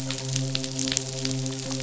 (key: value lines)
label: biophony, midshipman
recorder: SoundTrap 500